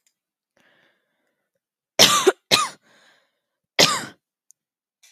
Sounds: Cough